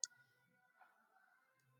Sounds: Laughter